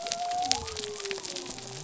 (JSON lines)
{"label": "biophony", "recorder": "SoundTrap 300"}